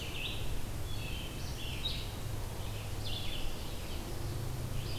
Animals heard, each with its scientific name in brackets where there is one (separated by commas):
Ovenbird (Seiurus aurocapilla), Wood Thrush (Hylocichla mustelina), Red-eyed Vireo (Vireo olivaceus)